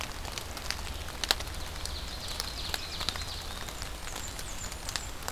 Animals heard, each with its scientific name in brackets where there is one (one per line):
Blackburnian Warbler (Setophaga fusca)
Ovenbird (Seiurus aurocapilla)